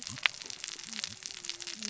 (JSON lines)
{"label": "biophony, cascading saw", "recorder": "SoundTrap 600 or HydroMoth"}